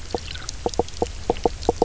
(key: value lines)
label: biophony, knock croak
recorder: SoundTrap 300